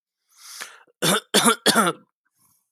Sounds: Cough